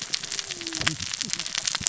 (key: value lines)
label: biophony, cascading saw
recorder: SoundTrap 600 or HydroMoth